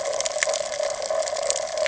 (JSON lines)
{"label": "ambient", "recorder": "HydroMoth"}